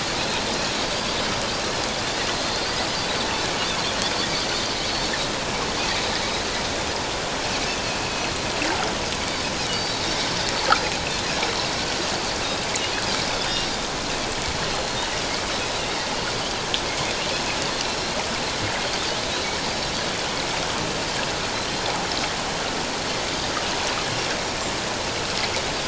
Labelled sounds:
8.0	8.3	Pacific white-sided dolphin, 2.5 to 2.8 kHz
19.3	19.6	Pacific white-sided dolphin, 3.8 to 4.1 kHz

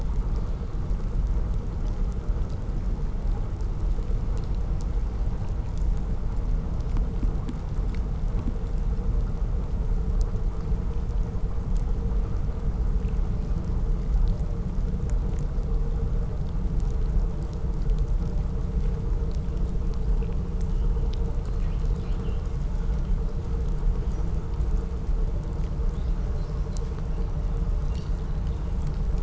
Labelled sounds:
21.1	22.5	killer whale, southern resident, 1.7 to 5.4 kHz

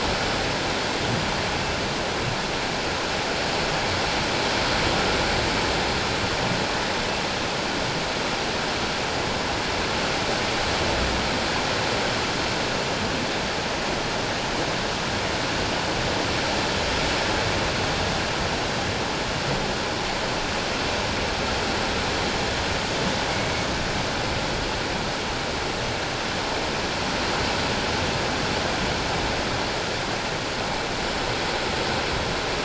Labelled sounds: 23.3	23.7	humpback whale, 2.1 to 2.3 kHz

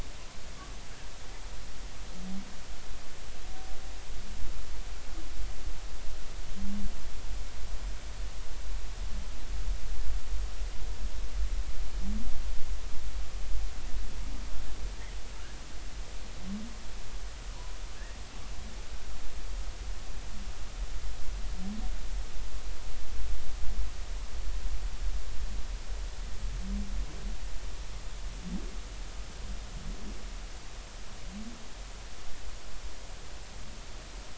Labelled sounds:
18.5	18.8	humpback whale, 0.93 to 1.1 kHz

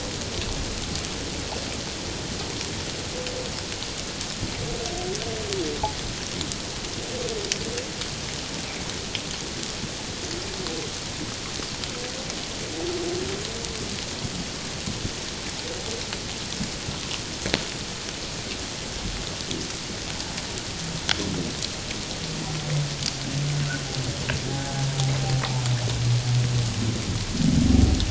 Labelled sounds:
24.5	24.8	humpback whale, 0.78 to 0.88 kHz

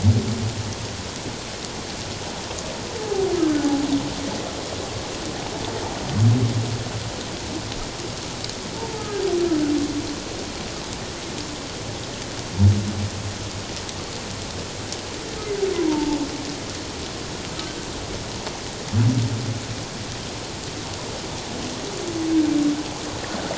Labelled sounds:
3.0	3.7	humpback whale, 0.78 to 1.6 kHz
8.8	9.2	humpback whale, 0.81 to 1.3 kHz
15.7	16.2	humpback whale, 0.84 to 1.1 kHz

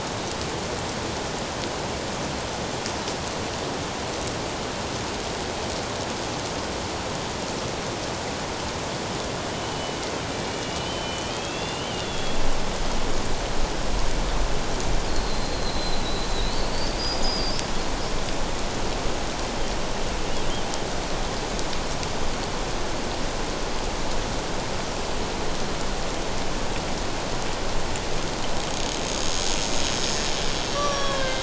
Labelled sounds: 9.5	12.4	killer whale, Bigg's (transient), 2.2 to 3.6 kHz
15.1	17.6	killer whale, Bigg's (transient), 3.6 to 5.2 kHz
30.7	31.4	killer whale, Bigg's (transient), 1.0 to 5.9 kHz

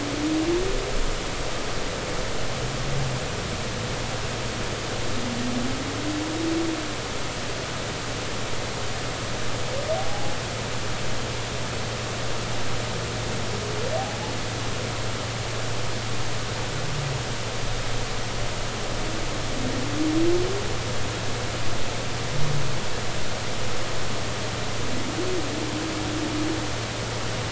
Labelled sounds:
10.0	10.4	humpback whale, 0.80 to 0.86 kHz

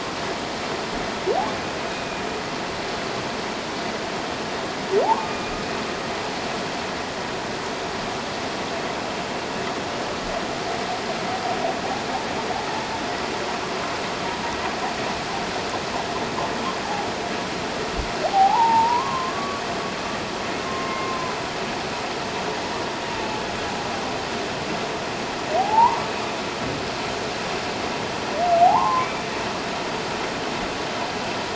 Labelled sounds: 1.9	2.2	humpback whale, 2.4 to 2.6 kHz
5.0	5.3	humpback whale, 0.78 to 1.1 kHz
18.2	19.6	humpback whale, 0.78 to 1.2 kHz
20.6	21.4	humpback whale, 0.97 to 1.1 kHz
25.6	26.0	humpback whale, 0.78 to 1.2 kHz
28.6	29.3	humpback whale, 0.78 to 2.4 kHz

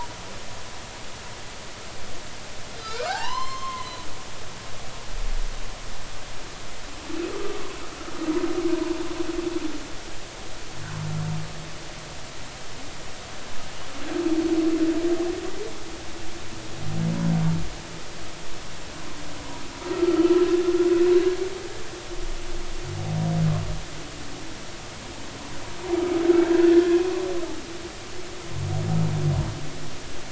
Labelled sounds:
2.8	3.9	humpback whale, 0.80 to 5.4 kHz
7.3	7.6	humpback whale, 1.2 to 1.3 kHz
8.8	9.0	humpback whale, 0.86 to 1.1 kHz
18.9	19.2	humpback whale, 0.99 to 1.2 kHz
20.0	20.4	humpback whale, 1.2 to 3.0 kHz
21.2	21.4	humpback whale, 1.6 to 1.7 kHz
26.7	27.0	humpback whale, 1.6 to 1.8 kHz

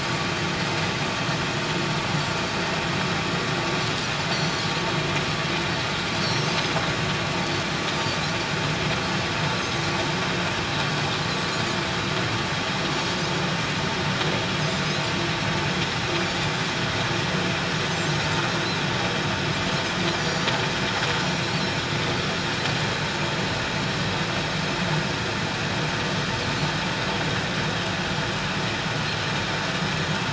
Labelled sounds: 4.3	4.7	Pacific white-sided dolphin, 4.1 to 4.6 kHz
6.2	6.5	Pacific white-sided dolphin, 5.4 to 5.6 kHz
7.9	8.2	Pacific white-sided dolphin, 4.5 to 4.8 kHz
9.6	9.8	Pacific white-sided dolphin, 6.2 to 6.6 kHz
17.8	18.1	Pacific white-sided dolphin, 7.2 to 7.6 kHz
20.2	20.5	Pacific white-sided dolphin, 4.5 to 7.0 kHz

